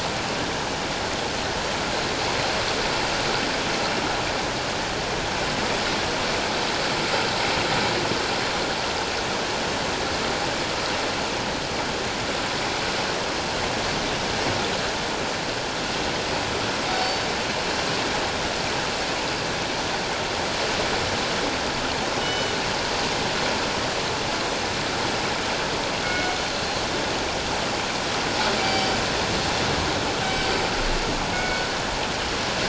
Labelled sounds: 17.0	17.3	killer whale, northern resident, G clan, call N24ii, 4.5 to 4.6 kHz
22.2	22.6	killer whale, northern resident, G clan, 2.9 to 3.8 kHz
28.6	29.0	killer whale, northern resident, G clan, 2.2 to 4.8 kHz
31.3	31.7	killer whale, northern resident, G clan, 1.4 to 2.3 kHz

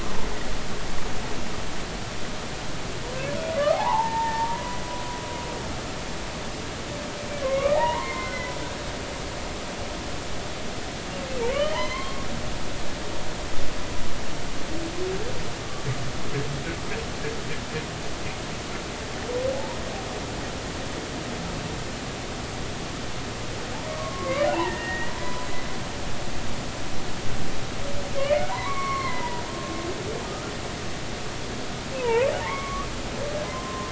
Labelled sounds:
3.7	4.8	humpback whale, 0.80 to 1.9 kHz
7.4	8.6	humpback whale, 0.80 to 2.5 kHz
11.5	12.3	humpback whale, 0.99 to 3.3 kHz
23.9	25.5	humpback whale, 0.80 to 2.0 kHz
28.1	29.4	humpback whale, 0.90 to 4.4 kHz
32.0	32.9	humpback whale, 0.83 to 3.4 kHz
33.4	33.9	humpback whale, 0.99 to 1.1 kHz

